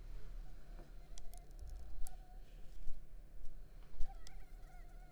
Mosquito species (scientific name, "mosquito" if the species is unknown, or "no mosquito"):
Anopheles arabiensis